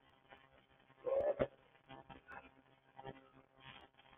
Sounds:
Sigh